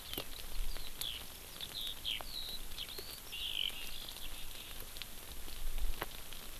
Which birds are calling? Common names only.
Eurasian Skylark